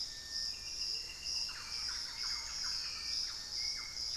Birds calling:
Thrush-like Wren (Campylorhynchus turdinus)
Hauxwell's Thrush (Turdus hauxwelli)
Little Tinamou (Crypturellus soui)

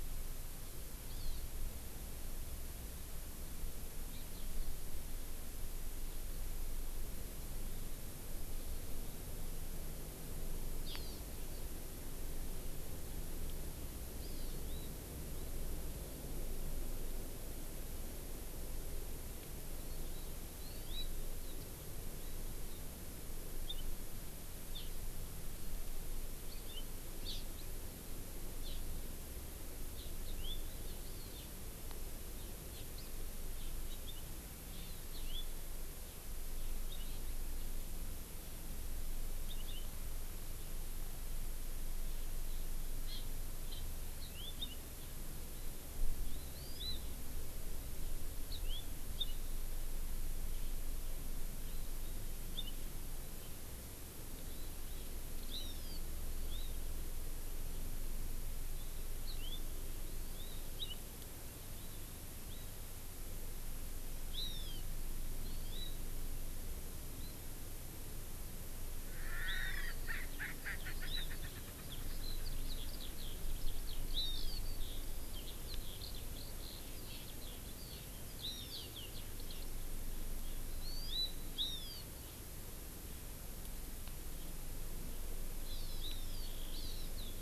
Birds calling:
Erckel's Francolin (Pternistis erckelii)
House Finch (Haemorhous mexicanus)
Hawaii Amakihi (Chlorodrepanis virens)
Eurasian Skylark (Alauda arvensis)

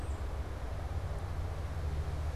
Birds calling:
Tufted Titmouse (Baeolophus bicolor)

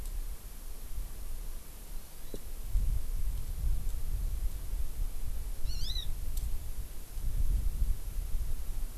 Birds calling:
Hawaii Amakihi (Chlorodrepanis virens)

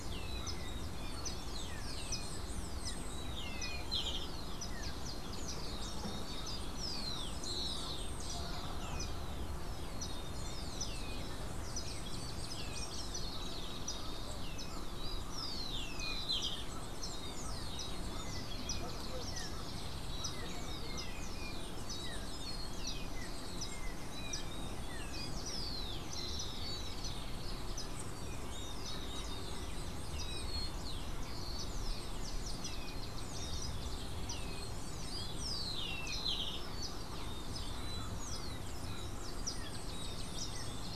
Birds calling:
Golden-faced Tyrannulet (Zimmerius chrysops)
Rufous-collared Sparrow (Zonotrichia capensis)
House Wren (Troglodytes aedon)

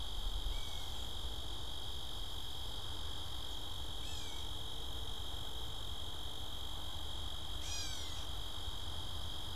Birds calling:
Gray Catbird (Dumetella carolinensis)

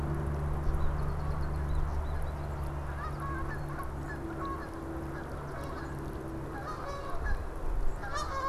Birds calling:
American Goldfinch (Spinus tristis)
Canada Goose (Branta canadensis)

